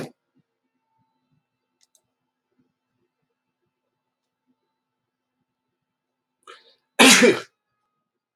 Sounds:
Sneeze